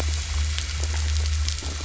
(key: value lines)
label: anthrophony, boat engine
recorder: SoundTrap 500